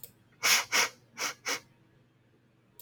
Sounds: Sniff